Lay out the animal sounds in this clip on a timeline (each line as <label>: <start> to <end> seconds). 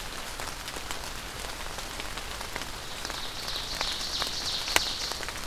Ovenbird (Seiurus aurocapilla): 2.8 to 5.5 seconds